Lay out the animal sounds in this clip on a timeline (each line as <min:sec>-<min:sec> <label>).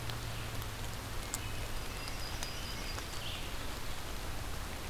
0:01.1-0:03.6 American Robin (Turdus migratorius)
0:01.7-0:03.1 Yellow-rumped Warbler (Setophaga coronata)